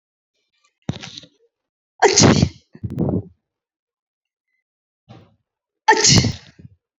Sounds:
Sneeze